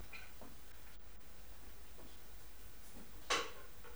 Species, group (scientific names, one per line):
Leptophyes boscii
Orthoptera